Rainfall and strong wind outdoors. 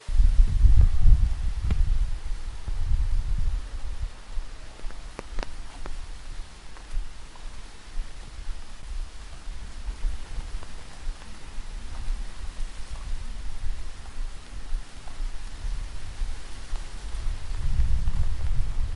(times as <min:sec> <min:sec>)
0:00.6 0:15.5